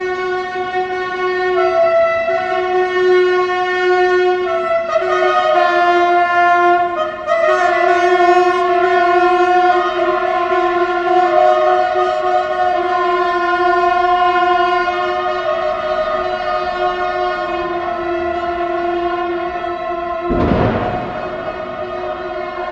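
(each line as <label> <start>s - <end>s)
Loud, blaring locomotive horns overlap at varying intervals, reverberating through a railway station. 0.0s - 22.7s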